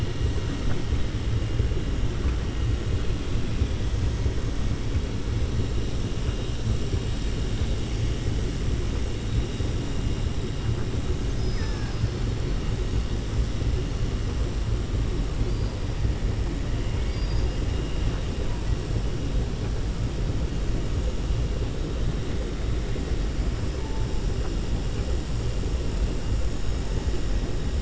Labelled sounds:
11.1	12.2	killer whale, southern resident, 0.78 to 6.7 kHz
17.0	17.6	killer whale, southern resident, 3.7 to 6.0 kHz

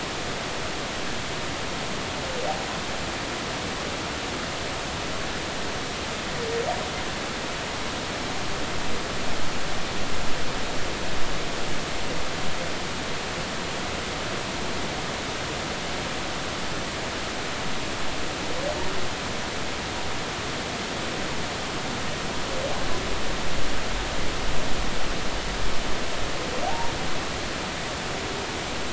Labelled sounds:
26.7	26.9	humpback whale, 0.80 to 0.99 kHz

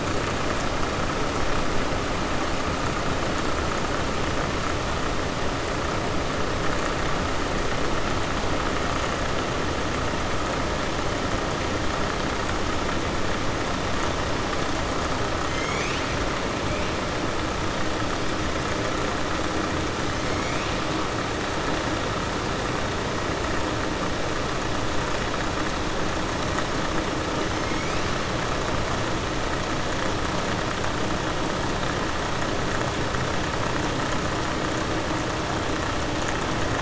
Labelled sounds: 27.5	28.0	killer whale, southern resident, 2.1 to 3.1 kHz

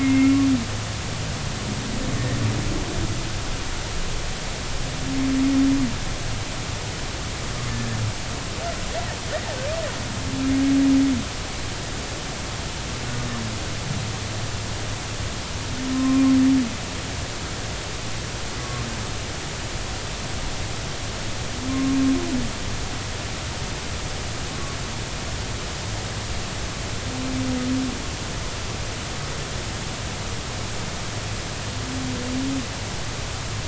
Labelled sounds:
0.0	0.4	humpback whale, 2.1 to 2.8 kHz
7.7	8.0	humpback whale, 1.6 to 1.8 kHz
15.9	16.2	humpback whale, 0.99 to 1.1 kHz
18.6	18.8	humpback whale, 1.0 to 1.2 kHz
21.7	22.0	humpback whale, 1.0 to 1.1 kHz

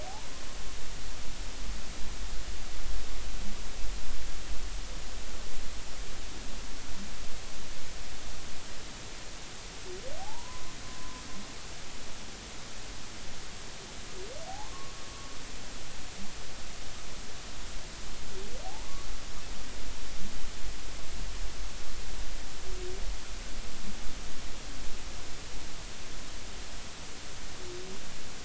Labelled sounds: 10.2	11.2	humpback whale, 0.80 to 1.1 kHz
14.5	14.9	humpback whale, 0.80 to 1.2 kHz

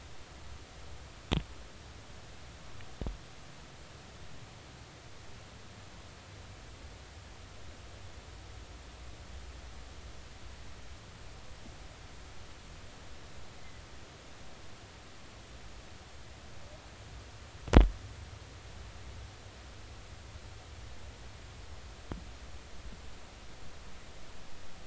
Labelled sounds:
13.6	13.8	humpback whale, 2.0 to 2.2 kHz

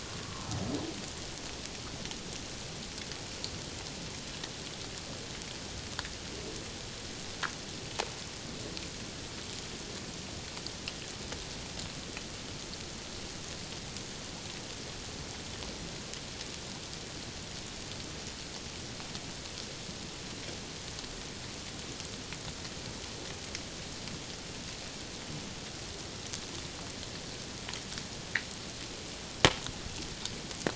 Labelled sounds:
0.2	0.5	humpback whale, 0.97 to 1.2 kHz

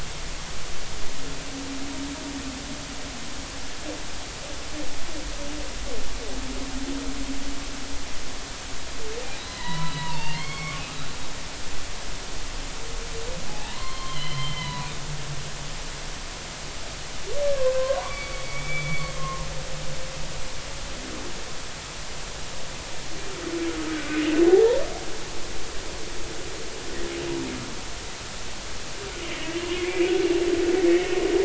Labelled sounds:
9.4	10.8	humpback whale, 0.86 to 4.7 kHz
13.5	14.9	humpback whale, 0.80 to 4.3 kHz
17.5	19.4	humpback whale, 0.93 to 3.5 kHz
23.9	24.8	humpback whale, 0.80 to 1.6 kHz
29.6	29.8	humpback whale, 2.7 to 2.9 kHz
30.9	31.1	humpback whale, 2.1 to 2.3 kHz

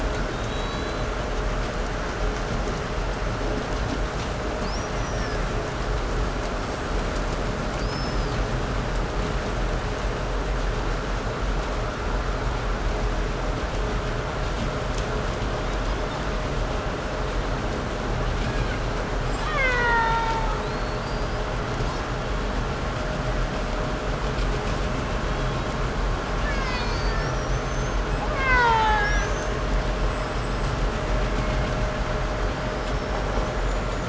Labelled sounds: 0.0	1.6	killer whale, Bigg's (transient), call T01, 0.75 to 5.5 kHz
4.4	5.5	killer whale, 1.0 to 6.8 kHz
6.4	9.1	killer whale, Bigg's (transient), 1.1 to 8.0 kHz
15.2	16.4	killer whale, 1.8 to 5.8 kHz
18.0	19.1	killer whale, Bigg's (transient), call T01, 1.1 to 6.1 kHz
19.1	20.8	killer whale, Bigg's (transient), 0.24 to 8.0 kHz
20.5	22.2	killer whale, 3.6 to 8.0 kHz
24.6	25.9	killer whale, 2.4 to 4.4 kHz
26.1	27.8	killer whale, Bigg's (transient), call T08, 0.43 to 7.2 kHz
28.1	29.7	killer whale, Bigg's (transient), call T08, 0.42 to 8.0 kHz
29.8	30.9	killer whale, Bigg's (transient), 1.6 to 8.0 kHz
32.5	34.0	killer whale, 4.4 to 7.2 kHz

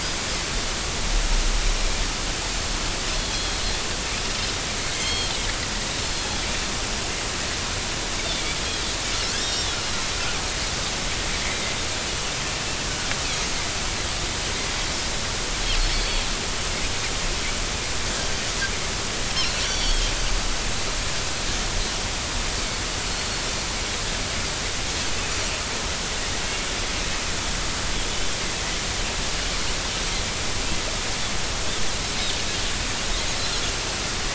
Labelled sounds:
3.2	3.6	Pacific white-sided dolphin, 3.2 to 3.5 kHz
4.9	5.3	Pacific white-sided dolphin, 2.0 to 4.4 kHz
6.1	6.4	Pacific white-sided dolphin, 3.3 to 3.4 kHz
9.3	9.8	Pacific white-sided dolphin, 3.1 to 7.5 kHz
15.9	16.2	Pacific white-sided dolphin, 4.4 to 4.6 kHz
19.6	20.1	Pacific white-sided dolphin, 3.1 to 5.8 kHz

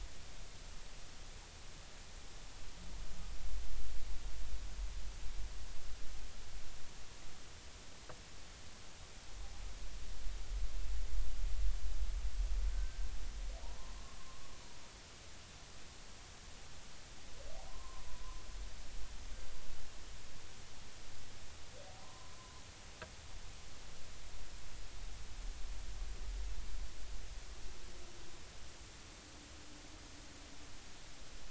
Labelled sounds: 12.7	13.1	humpback whale, 1.5 to 1.6 kHz
13.8	14.0	humpback whale, 0.83 to 1.1 kHz
17.6	18.2	humpback whale, 0.80 to 1.1 kHz
22.0	22.6	humpback whale, 0.86 to 1.1 kHz

